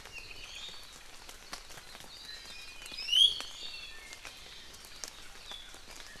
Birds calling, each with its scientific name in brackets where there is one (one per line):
Iiwi (Drepanis coccinea)